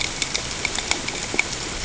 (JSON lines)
{"label": "ambient", "recorder": "HydroMoth"}